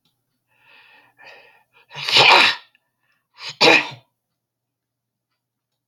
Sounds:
Throat clearing